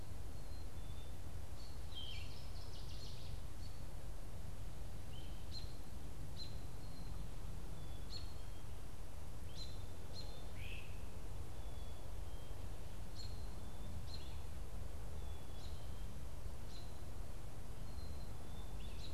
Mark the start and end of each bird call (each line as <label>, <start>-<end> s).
Black-capped Chickadee (Poecile atricapillus), 0.0-19.1 s
American Robin (Turdus migratorius), 1.4-19.1 s
Northern Waterthrush (Parkesia noveboracensis), 1.7-3.6 s
Yellow-throated Vireo (Vireo flavifrons), 1.8-2.6 s
Great Crested Flycatcher (Myiarchus crinitus), 10.4-11.0 s